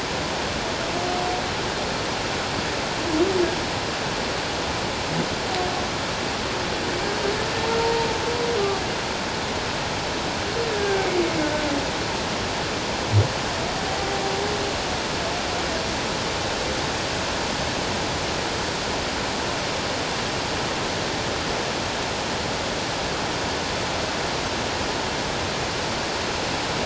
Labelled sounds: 7.8	8.1	humpback whale, 0.88 to 0.97 kHz
10.7	11.1	humpback whale, 1.5 to 1.7 kHz

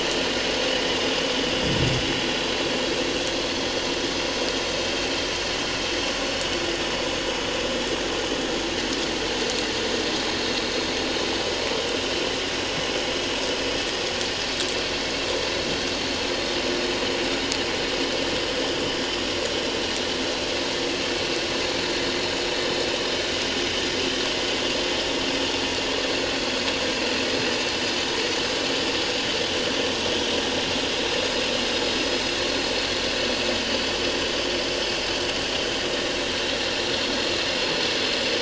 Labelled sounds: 26.4	26.6	vessel noise, 4.4 to 4.5 kHz

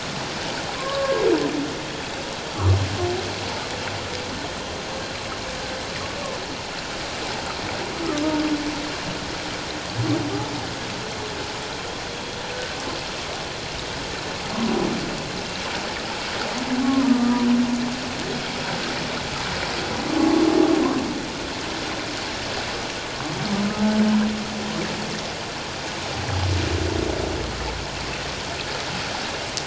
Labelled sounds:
0.8	1.2	humpback whale, 0.97 to 1.2 kHz
16.8	17.4	humpback whale, 0.91 to 1.3 kHz
20.2	20.4	humpback whale, 1.0 to 1.2 kHz

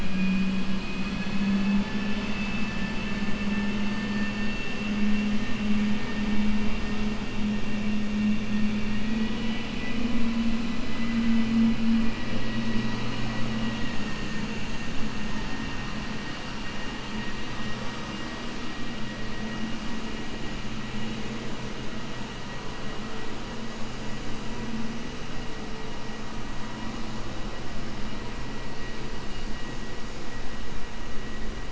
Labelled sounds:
9.1	10.0	vessel noise, 1.9 to 3.9 kHz
10.9	11.4	vessel noise, 1.2 to 3.0 kHz

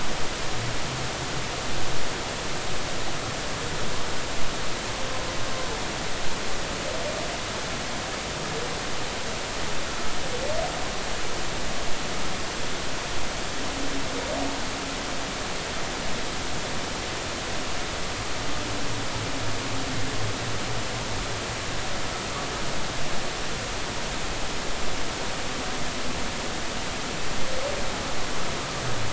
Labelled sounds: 9.9	10.1	humpback whale, 1.3 to 1.5 kHz

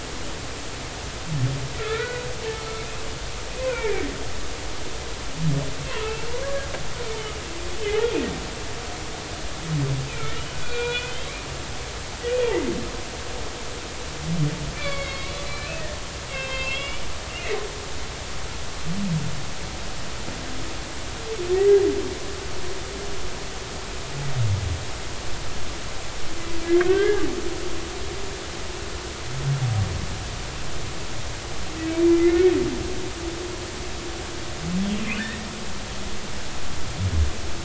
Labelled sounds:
1.7	2.3	humpback whale, 1.2 to 2.5 kHz
5.9	6.7	humpback whale, 0.83 to 2.8 kHz
10.1	11.2	humpback whale, 1.2 to 3.6 kHz
12.3	12.6	humpback whale, 2.2 to 2.6 kHz
14.8	15.7	humpback whale, 1.1 to 4.4 kHz
16.3	17.0	humpback whale, 1.5 to 3.8 kHz
26.8	27.3	humpback whale, 1.4 to 2.1 kHz
32.1	32.4	humpback whale, 2.0 to 2.2 kHz
35.0	35.5	humpback whale, 1.4 to 2.8 kHz

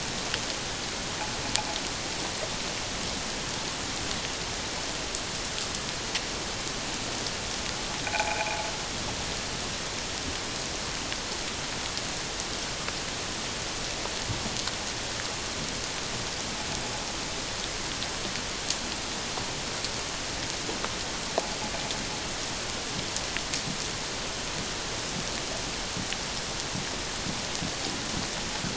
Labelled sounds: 8.1	8.7	croaking sound likely from a nearby submerged object, 0.78 to 2.5 kHz

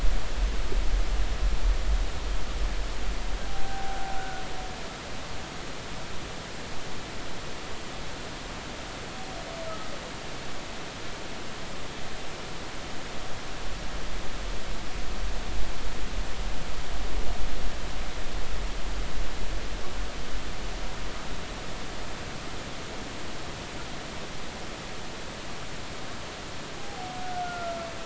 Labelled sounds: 3.5	4.4	humpback whale, 0.80 to 1.6 kHz
26.8	27.8	humpback whale, 0.80 to 1.6 kHz

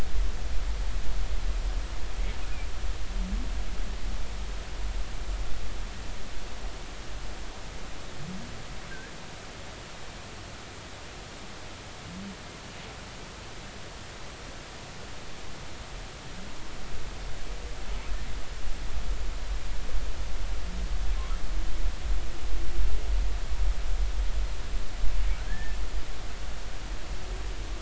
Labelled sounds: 25.5	25.8	humpback whale, 1.5 to 2.0 kHz

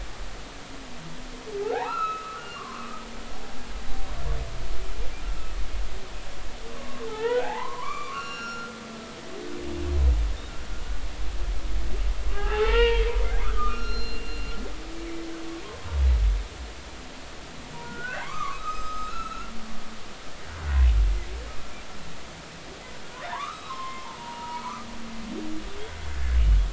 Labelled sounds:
1.6	3.0	humpback whale, 0.80 to 4.2 kHz
6.7	8.7	humpback whale, 0.80 to 7.0 kHz
12.3	14.5	humpback whale, 0.80 to 5.6 kHz
15.6	15.9	humpback whale, 0.99 to 1.1 kHz
17.8	19.5	humpback whale, 0.80 to 7.6 kHz
23.3	24.9	humpback whale, 0.83 to 5.2 kHz

